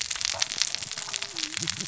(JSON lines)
{"label": "biophony, cascading saw", "recorder": "SoundTrap 600 or HydroMoth"}